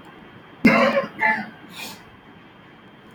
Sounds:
Sneeze